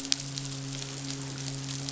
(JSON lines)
{"label": "biophony, midshipman", "recorder": "SoundTrap 500"}